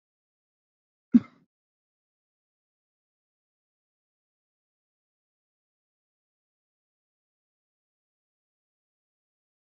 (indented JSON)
{
  "expert_labels": [
    {
      "quality": "ok",
      "cough_type": "dry",
      "dyspnea": false,
      "wheezing": false,
      "stridor": false,
      "choking": false,
      "congestion": false,
      "nothing": true,
      "diagnosis": "healthy cough",
      "severity": "pseudocough/healthy cough"
    }
  ],
  "age": 25,
  "gender": "female",
  "respiratory_condition": false,
  "fever_muscle_pain": true,
  "status": "healthy"
}